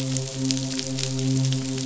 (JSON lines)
{"label": "biophony, midshipman", "recorder": "SoundTrap 500"}